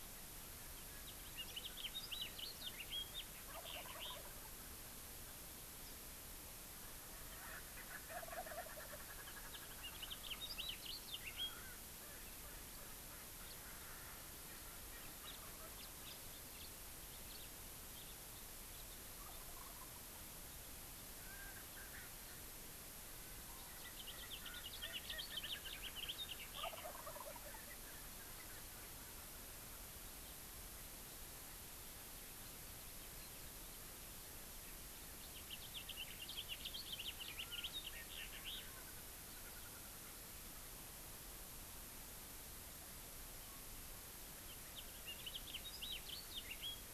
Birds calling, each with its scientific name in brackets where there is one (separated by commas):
Erckel's Francolin (Pternistis erckelii), Wild Turkey (Meleagris gallopavo), House Finch (Haemorhous mexicanus)